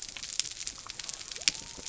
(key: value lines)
label: biophony
recorder: SoundTrap 300